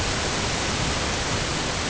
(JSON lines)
{"label": "ambient", "recorder": "HydroMoth"}